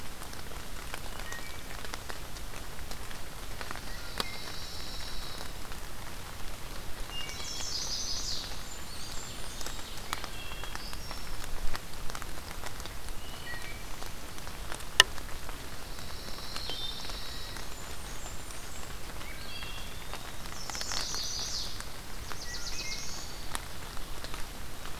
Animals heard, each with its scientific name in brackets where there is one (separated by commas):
Chestnut-sided Warbler (Setophaga pensylvanica), Pine Warbler (Setophaga pinus), Blackburnian Warbler (Setophaga fusca), Wood Thrush (Hylocichla mustelina), Eastern Wood-Pewee (Contopus virens), Black-throated Blue Warbler (Setophaga caerulescens)